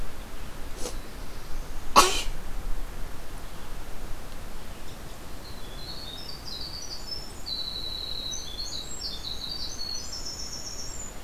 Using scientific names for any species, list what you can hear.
Setophaga caerulescens, Troglodytes hiemalis